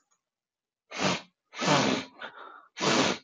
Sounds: Sniff